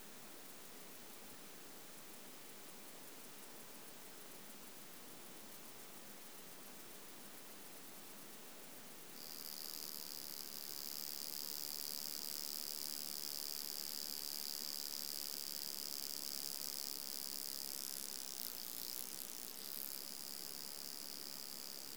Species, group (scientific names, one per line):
Stenobothrus rubicundulus
Orthoptera